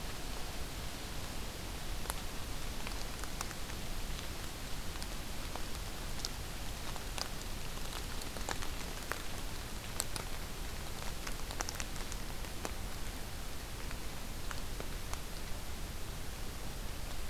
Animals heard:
forest ambience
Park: Acadia National Park